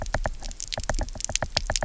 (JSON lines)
{"label": "biophony, knock", "recorder": "SoundTrap 300"}